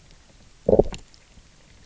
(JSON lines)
{"label": "biophony, low growl", "recorder": "SoundTrap 300"}